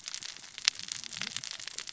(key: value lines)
label: biophony, cascading saw
recorder: SoundTrap 600 or HydroMoth